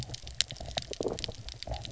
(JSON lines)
{"label": "biophony", "recorder": "SoundTrap 300"}